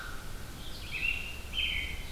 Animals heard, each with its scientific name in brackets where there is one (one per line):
American Robin (Turdus migratorius)
Red-eyed Vireo (Vireo olivaceus)